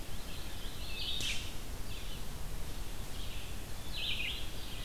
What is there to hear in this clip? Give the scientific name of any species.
Vireo olivaceus